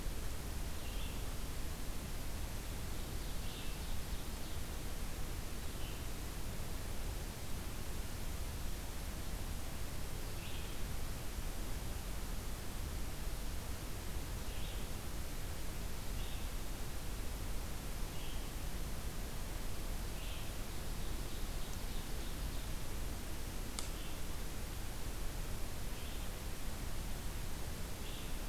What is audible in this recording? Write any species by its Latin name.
Vireo olivaceus, Seiurus aurocapilla